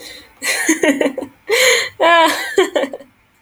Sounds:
Laughter